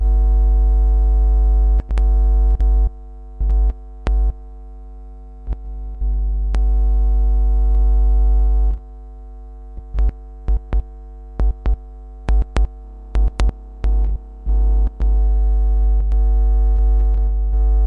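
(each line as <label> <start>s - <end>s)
Steady beeps and low-frequency hum pulses from a jack cable, subtly vibrating in the background. 0.0s - 17.9s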